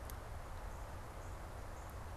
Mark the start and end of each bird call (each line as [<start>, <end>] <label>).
[0.10, 2.17] Northern Cardinal (Cardinalis cardinalis)